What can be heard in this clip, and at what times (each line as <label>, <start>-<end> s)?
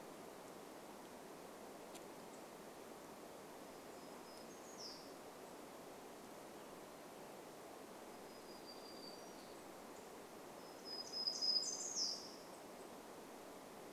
unidentified bird chip note, 2-4 s
warbler song, 2-6 s
warbler song, 8-14 s